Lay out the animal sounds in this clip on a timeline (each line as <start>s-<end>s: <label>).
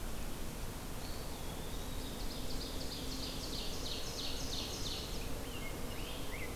0.8s-2.2s: Eastern Wood-Pewee (Contopus virens)
2.0s-5.3s: Ovenbird (Seiurus aurocapilla)
4.8s-6.6s: Rose-breasted Grosbeak (Pheucticus ludovicianus)